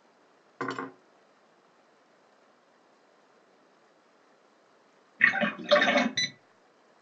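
At the start, you can hear cutlery. Next, about 5 seconds in, the sound of splashing is heard. Finally, about 6 seconds in, there is beeping.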